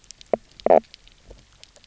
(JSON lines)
{"label": "biophony, knock croak", "recorder": "SoundTrap 300"}